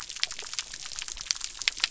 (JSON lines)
{"label": "biophony", "recorder": "SoundTrap 300"}